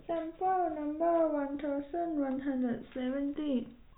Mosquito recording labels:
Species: no mosquito; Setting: cup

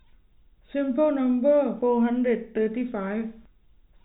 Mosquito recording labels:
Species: no mosquito; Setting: cup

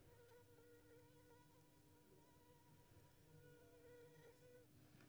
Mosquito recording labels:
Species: Anopheles squamosus; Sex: female; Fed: unfed; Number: one; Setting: cup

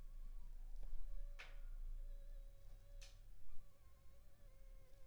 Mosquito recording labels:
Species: Anopheles funestus s.s.; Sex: female; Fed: unfed; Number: one; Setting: cup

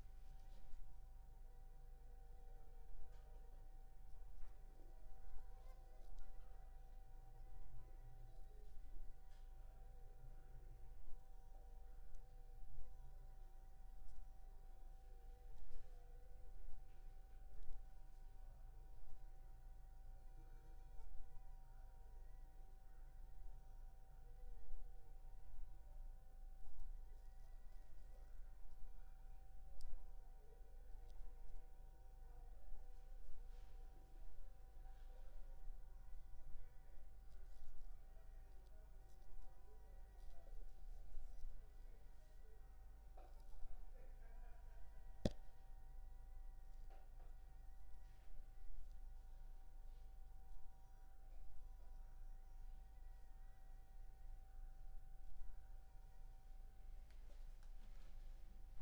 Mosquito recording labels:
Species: Anopheles funestus s.s.; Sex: female; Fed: unfed; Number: one; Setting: cup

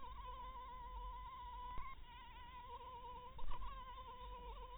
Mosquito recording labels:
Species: Anopheles dirus; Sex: female; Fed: blood-fed; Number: one; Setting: cup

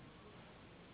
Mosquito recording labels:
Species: Anopheles gambiae s.s.; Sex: female; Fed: unfed; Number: one; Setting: insect culture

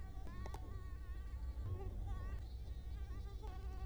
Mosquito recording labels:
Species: Culex quinquefasciatus; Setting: cup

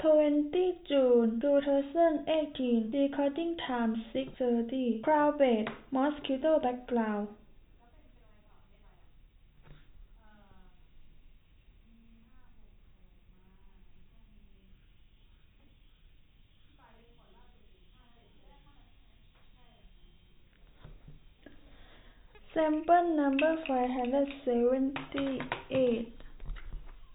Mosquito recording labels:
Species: no mosquito; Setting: cup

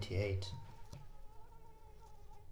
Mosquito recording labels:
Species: Anopheles arabiensis; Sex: female; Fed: unfed; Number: one; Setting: cup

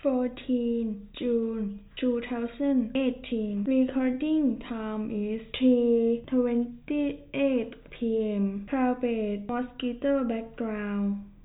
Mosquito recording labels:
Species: no mosquito; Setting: cup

